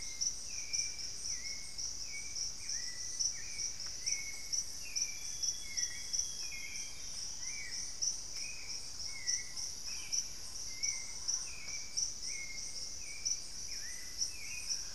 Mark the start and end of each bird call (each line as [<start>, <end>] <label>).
[0.00, 14.95] Hauxwell's Thrush (Turdus hauxwelli)
[0.00, 14.95] Solitary Black Cacique (Cacicus solitarius)
[3.12, 6.22] unidentified bird
[5.12, 7.33] Amazonian Grosbeak (Cyanoloxia rothschildii)
[14.43, 14.95] Mealy Parrot (Amazona farinosa)